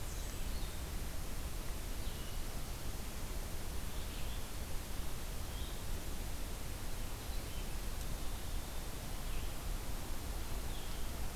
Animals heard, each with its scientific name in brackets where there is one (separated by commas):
Red-eyed Vireo (Vireo olivaceus)